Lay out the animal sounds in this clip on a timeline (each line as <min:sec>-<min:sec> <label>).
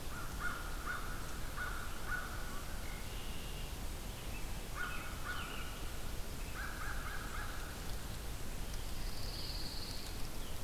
0:00.0-0:02.6 American Crow (Corvus brachyrhynchos)
0:02.7-0:03.9 Red-winged Blackbird (Agelaius phoeniceus)
0:04.7-0:05.8 American Crow (Corvus brachyrhynchos)
0:06.4-0:07.8 American Crow (Corvus brachyrhynchos)
0:08.9-0:10.5 Pine Warbler (Setophaga pinus)